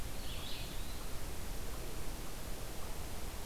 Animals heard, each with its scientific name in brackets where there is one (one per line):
Red-eyed Vireo (Vireo olivaceus)
Eastern Wood-Pewee (Contopus virens)